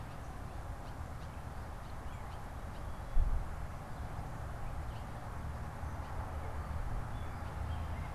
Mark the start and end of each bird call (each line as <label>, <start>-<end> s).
Blue Jay (Cyanocitta cristata), 0.5-3.2 s